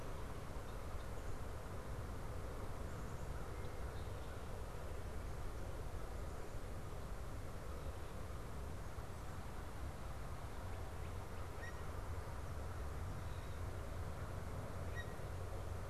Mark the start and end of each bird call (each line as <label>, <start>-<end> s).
Blue Jay (Cyanocitta cristata), 11.4-11.9 s
Blue Jay (Cyanocitta cristata), 14.8-15.5 s